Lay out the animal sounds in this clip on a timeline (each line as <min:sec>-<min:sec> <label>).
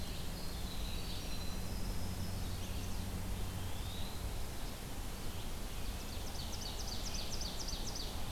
0:00.0-0:02.5 Winter Wren (Troglodytes hiemalis)
0:00.0-0:08.3 Red-eyed Vireo (Vireo olivaceus)
0:02.3-0:03.1 Chestnut-sided Warbler (Setophaga pensylvanica)
0:03.2-0:04.4 Eastern Wood-Pewee (Contopus virens)
0:05.1-0:08.3 Ovenbird (Seiurus aurocapilla)